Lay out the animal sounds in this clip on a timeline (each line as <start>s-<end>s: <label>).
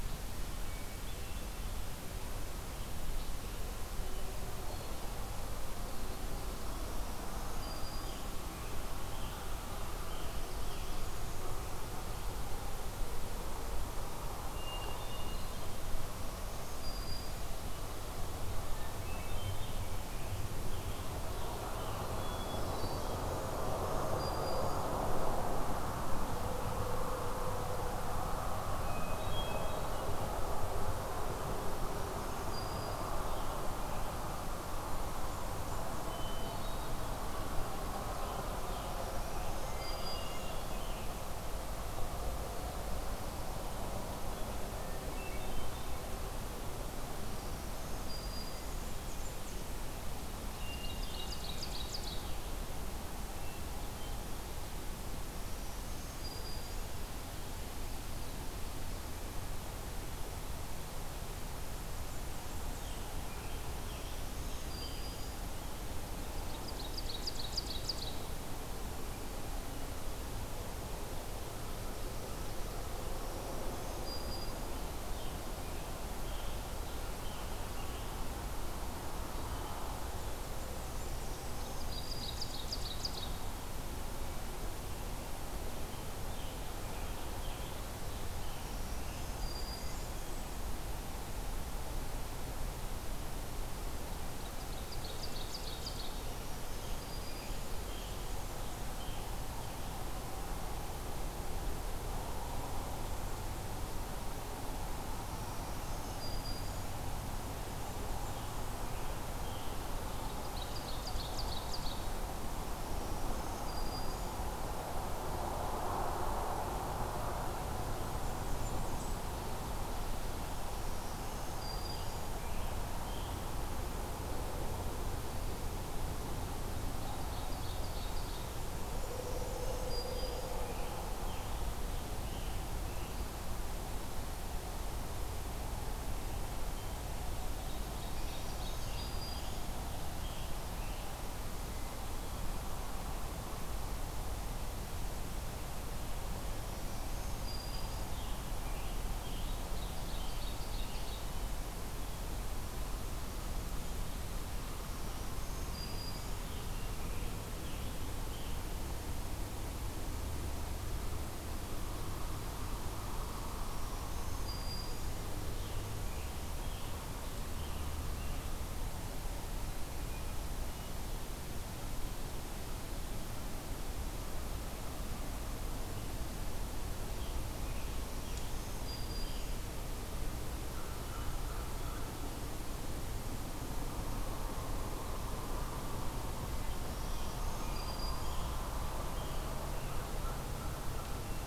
0.5s-2.0s: Hermit Thrush (Catharus guttatus)
7.1s-8.3s: Black-throated Green Warbler (Setophaga virens)
7.5s-11.1s: Scarlet Tanager (Piranga olivacea)
14.4s-15.6s: Hermit Thrush (Catharus guttatus)
16.3s-17.6s: Black-throated Green Warbler (Setophaga virens)
18.6s-19.8s: Hermit Thrush (Catharus guttatus)
19.5s-22.2s: Scarlet Tanager (Piranga olivacea)
22.1s-23.1s: Hermit Thrush (Catharus guttatus)
23.7s-24.9s: Black-throated Green Warbler (Setophaga virens)
28.7s-30.0s: Hermit Thrush (Catharus guttatus)
31.6s-33.7s: Black-throated Green Warbler (Setophaga virens)
35.9s-37.0s: Hermit Thrush (Catharus guttatus)
37.9s-41.2s: Scarlet Tanager (Piranga olivacea)
38.8s-40.6s: Black-throated Green Warbler (Setophaga virens)
39.7s-40.7s: Hermit Thrush (Catharus guttatus)
44.7s-45.9s: Hermit Thrush (Catharus guttatus)
47.1s-48.9s: Black-throated Green Warbler (Setophaga virens)
48.7s-49.8s: Blackburnian Warbler (Setophaga fusca)
50.6s-51.7s: Hermit Thrush (Catharus guttatus)
50.8s-52.4s: Ovenbird (Seiurus aurocapilla)
55.3s-56.9s: Black-throated Green Warbler (Setophaga virens)
61.6s-63.2s: Blackburnian Warbler (Setophaga fusca)
62.7s-65.9s: Scarlet Tanager (Piranga olivacea)
63.9s-65.3s: Black-throated Green Warbler (Setophaga virens)
66.3s-68.3s: Ovenbird (Seiurus aurocapilla)
73.1s-74.8s: Black-throated Green Warbler (Setophaga virens)
75.0s-78.4s: Scarlet Tanager (Piranga olivacea)
81.3s-82.5s: Black-throated Green Warbler (Setophaga virens)
81.8s-83.4s: Ovenbird (Seiurus aurocapilla)
85.7s-89.4s: Scarlet Tanager (Piranga olivacea)
88.5s-90.1s: Black-throated Green Warbler (Setophaga virens)
94.5s-96.4s: Ovenbird (Seiurus aurocapilla)
96.0s-97.6s: Black-throated Green Warbler (Setophaga virens)
96.5s-99.4s: Scarlet Tanager (Piranga olivacea)
105.1s-106.9s: Black-throated Green Warbler (Setophaga virens)
107.9s-110.1s: Scarlet Tanager (Piranga olivacea)
110.0s-112.2s: Ovenbird (Seiurus aurocapilla)
112.8s-114.4s: Black-throated Green Warbler (Setophaga virens)
118.0s-119.2s: Blackburnian Warbler (Setophaga fusca)
120.7s-122.5s: Black-throated Green Warbler (Setophaga virens)
121.7s-123.5s: Scarlet Tanager (Piranga olivacea)
127.2s-128.4s: Ovenbird (Seiurus aurocapilla)
129.0s-130.7s: Black-throated Green Warbler (Setophaga virens)
129.7s-133.2s: Scarlet Tanager (Piranga olivacea)
137.2s-139.1s: Ovenbird (Seiurus aurocapilla)
138.1s-139.7s: Black-throated Green Warbler (Setophaga virens)
138.6s-141.1s: Scarlet Tanager (Piranga olivacea)
146.6s-148.1s: Black-throated Green Warbler (Setophaga virens)
147.4s-151.8s: Scarlet Tanager (Piranga olivacea)
149.7s-151.3s: Ovenbird (Seiurus aurocapilla)
154.7s-156.6s: Black-throated Green Warbler (Setophaga virens)
155.7s-158.8s: Scarlet Tanager (Piranga olivacea)
163.6s-165.3s: Black-throated Green Warbler (Setophaga virens)
165.2s-168.6s: Scarlet Tanager (Piranga olivacea)
176.8s-179.6s: Scarlet Tanager (Piranga olivacea)
177.7s-179.6s: Black-throated Green Warbler (Setophaga virens)
180.6s-182.2s: American Crow (Corvus brachyrhynchos)
186.7s-188.4s: Black-throated Green Warbler (Setophaga virens)
187.5s-190.1s: Scarlet Tanager (Piranga olivacea)